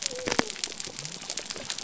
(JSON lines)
{"label": "biophony", "recorder": "SoundTrap 300"}